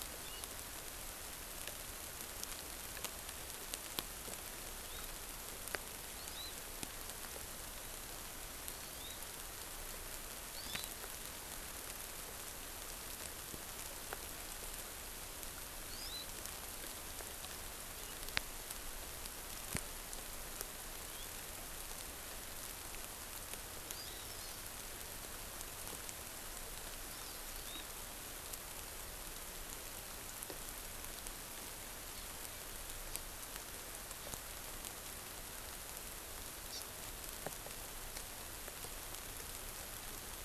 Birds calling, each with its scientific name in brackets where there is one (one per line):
Hawaii Amakihi (Chlorodrepanis virens)